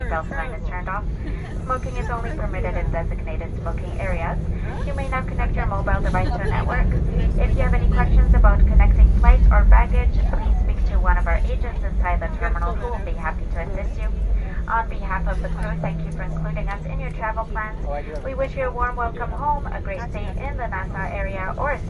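A woman makes an announcement with soft background noise of people talking. 0.0 - 21.9

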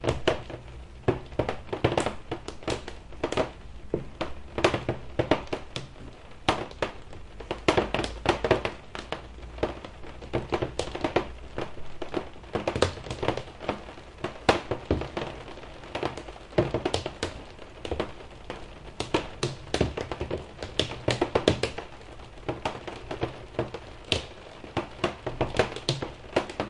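Heavy rain continuously hits a window. 0.1 - 26.7

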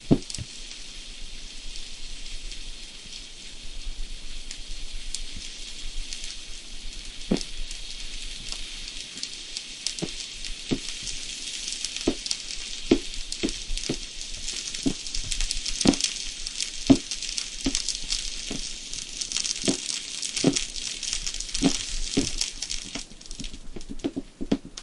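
Fire crackling in the background. 0.0 - 24.8
Occasional thumping sounds, possibly footsteps on a wooden floor. 0.0 - 24.8

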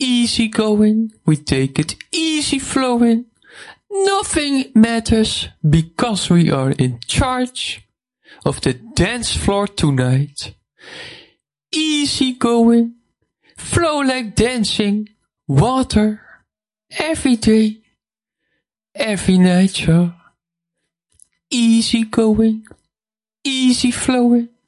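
Someone is speaking. 0.0 - 24.6

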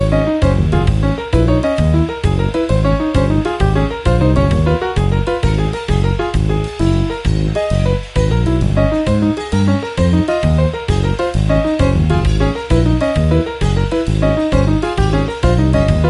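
A short jazz song is playing. 0.0 - 16.1

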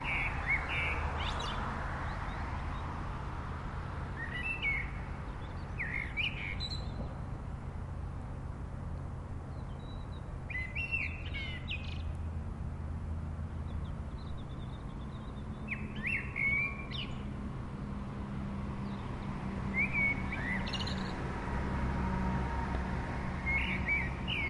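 Birds chirping at different volumes and pitches. 0.0 - 4.1
A car passes by in the distance. 0.0 - 6.3
Constant wind-like white noise. 0.0 - 24.5
Different birds chirp. 4.7 - 7.7
Different birds chirp at varying volumes. 10.5 - 13.5
Birds chirping quietly in the distance. 14.4 - 16.0
A bird chirps at different pitches. 15.7 - 17.5
A vehicle is driving closer. 18.8 - 24.5

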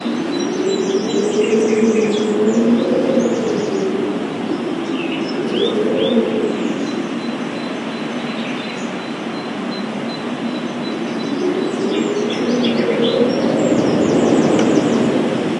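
Birds chirping in the background. 0.1 - 15.6
Wind howling deeply and sinisterly. 0.1 - 15.6

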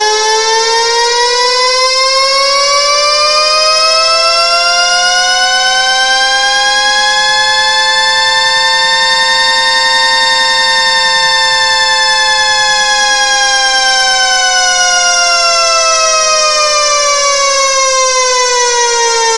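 A siren gradually rises in pitch, reaches a peak, and then gradually falls. 0.0 - 19.4

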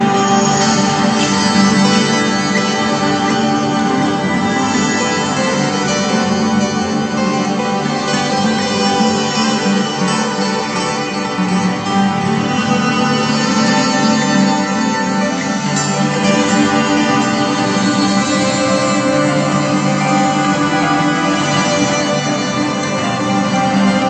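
Heavily distorted music with multiple layers of edited acoustic guitar recordings. 0.0 - 24.1

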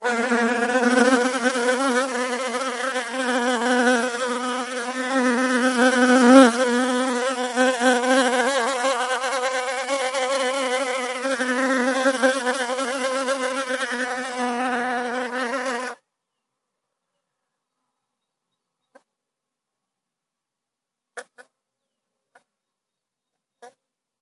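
A bee is buzzing. 0.0 - 16.0
A bee buzzing quietly. 21.1 - 21.4
A bee is buzzing very quietly. 23.6 - 23.7

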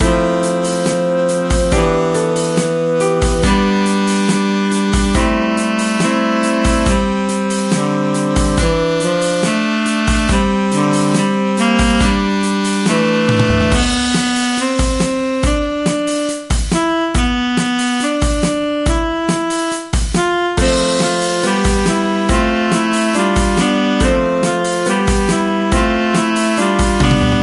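A group of saxophones playing together in harmony, creating a rich jazzy sound with smooth, flowing melodies. 0.0 - 14.1
A drum maintains a steady rhythm in a jazz band. 0.0 - 14.3
A drum plays a rhythm in a quick pattern. 14.1 - 27.4
A saxophone plays a jazzy solo. 14.3 - 27.4

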